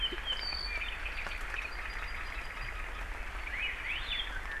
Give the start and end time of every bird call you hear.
0.0s-2.8s: Apapane (Himatione sanguinea)
3.5s-4.2s: Hawaii Elepaio (Chasiempis sandwichensis)
3.6s-4.6s: Iiwi (Drepanis coccinea)

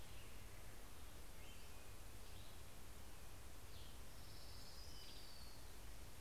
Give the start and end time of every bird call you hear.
0.0s-4.8s: Black-headed Grosbeak (Pheucticus melanocephalus)
3.4s-5.8s: Western Tanager (Piranga ludoviciana)
3.9s-6.2s: Orange-crowned Warbler (Leiothlypis celata)

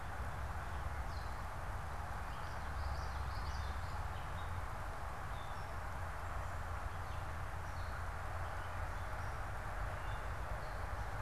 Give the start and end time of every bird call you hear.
0.0s-11.2s: Gray Catbird (Dumetella carolinensis)
2.0s-4.0s: Common Yellowthroat (Geothlypis trichas)

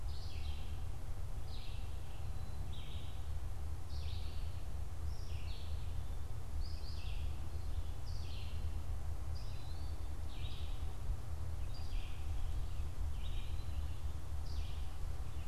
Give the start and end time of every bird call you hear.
0.0s-15.3s: Red-eyed Vireo (Vireo olivaceus)
9.2s-10.2s: Eastern Wood-Pewee (Contopus virens)

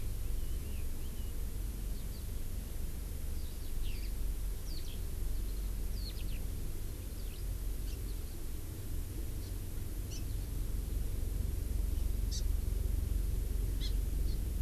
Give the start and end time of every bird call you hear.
0.2s-1.3s: Red-billed Leiothrix (Leiothrix lutea)
1.9s-2.2s: Eurasian Skylark (Alauda arvensis)
3.4s-4.1s: Eurasian Skylark (Alauda arvensis)
4.7s-5.0s: Eurasian Skylark (Alauda arvensis)
5.9s-6.4s: Eurasian Skylark (Alauda arvensis)
7.1s-7.4s: Eurasian Skylark (Alauda arvensis)
9.4s-9.5s: Hawaii Amakihi (Chlorodrepanis virens)
10.1s-10.2s: Hawaii Amakihi (Chlorodrepanis virens)
12.3s-12.4s: Hawaii Amakihi (Chlorodrepanis virens)
13.8s-13.9s: Hawaii Amakihi (Chlorodrepanis virens)
14.3s-14.4s: Hawaii Amakihi (Chlorodrepanis virens)

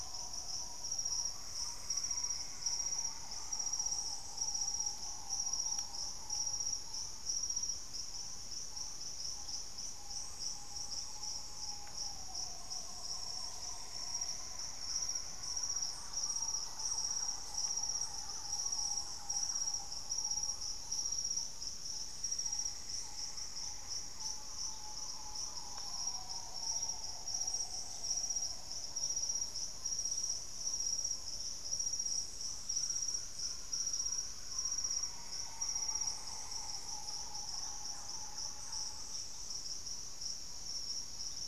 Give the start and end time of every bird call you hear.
0.0s-26.5s: Piratic Flycatcher (Legatus leucophaius)
0.0s-41.5s: Green Ibis (Mesembrinibis cayennensis)
14.0s-20.1s: Thrush-like Wren (Campylorhynchus turdinus)
16.5s-19.0s: Black-faced Antthrush (Formicarius analis)
37.0s-39.2s: Thrush-like Wren (Campylorhynchus turdinus)

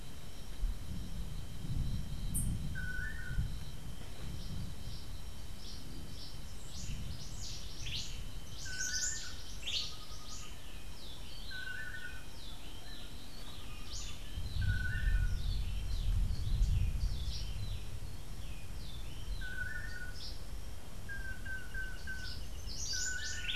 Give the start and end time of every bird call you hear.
0.0s-23.6s: Long-tailed Manakin (Chiroxiphia linearis)
3.5s-18.0s: Cabanis's Wren (Cantorchilus modestus)
18.2s-20.1s: Rufous-breasted Wren (Pheugopedius rutilus)
22.1s-23.6s: Cabanis's Wren (Cantorchilus modestus)

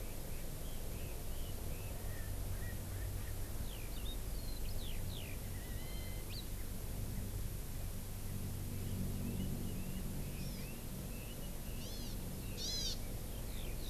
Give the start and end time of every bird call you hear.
0.0s-3.5s: Red-billed Leiothrix (Leiothrix lutea)
3.6s-6.5s: Eurasian Skylark (Alauda arvensis)
8.7s-13.8s: Red-billed Leiothrix (Leiothrix lutea)
10.4s-10.6s: Hawaii Amakihi (Chlorodrepanis virens)
11.8s-12.2s: Hawaii Amakihi (Chlorodrepanis virens)
12.5s-13.0s: Hawaii Amakihi (Chlorodrepanis virens)
13.5s-13.7s: Eurasian Skylark (Alauda arvensis)

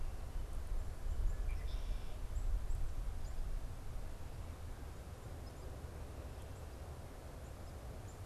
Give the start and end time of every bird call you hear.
1.2s-2.3s: Red-winged Blackbird (Agelaius phoeniceus)
2.0s-8.3s: Black-capped Chickadee (Poecile atricapillus)

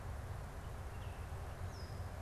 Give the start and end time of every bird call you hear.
1.5s-2.2s: Baltimore Oriole (Icterus galbula)

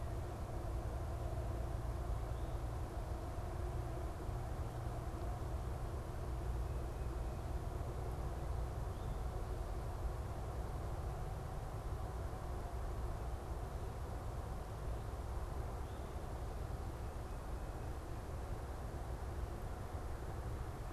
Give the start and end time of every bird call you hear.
6.5s-7.6s: Tufted Titmouse (Baeolophus bicolor)
8.6s-9.4s: unidentified bird

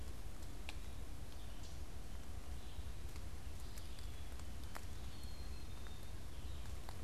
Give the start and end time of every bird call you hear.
0.0s-7.0s: Red-eyed Vireo (Vireo olivaceus)
4.9s-6.4s: Black-capped Chickadee (Poecile atricapillus)

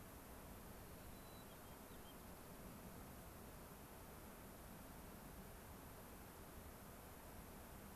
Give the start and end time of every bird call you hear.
0.8s-2.2s: White-crowned Sparrow (Zonotrichia leucophrys)

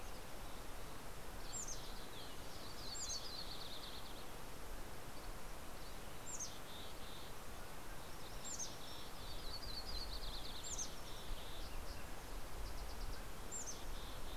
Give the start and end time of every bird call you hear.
1.3s-4.4s: Mountain Chickadee (Poecile gambeli)
2.6s-5.1s: Yellow-rumped Warbler (Setophaga coronata)
4.8s-5.9s: Dusky Flycatcher (Empidonax oberholseri)
5.8s-7.5s: Mountain Chickadee (Poecile gambeli)
7.4s-8.3s: Mountain Quail (Oreortyx pictus)
7.7s-13.7s: Green-tailed Towhee (Pipilo chlorurus)
8.3s-14.3s: Mountain Chickadee (Poecile gambeli)
8.7s-11.5s: Yellow-rumped Warbler (Setophaga coronata)

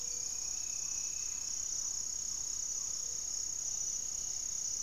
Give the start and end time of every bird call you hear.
0.0s-3.7s: Black-tailed Trogon (Trogon melanurus)
0.0s-4.8s: Gray-fronted Dove (Leptotila rufaxilla)
3.0s-4.8s: Great Antshrike (Taraba major)

